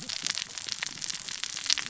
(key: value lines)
label: biophony, cascading saw
recorder: SoundTrap 600 or HydroMoth